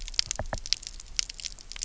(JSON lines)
{"label": "biophony, knock", "recorder": "SoundTrap 300"}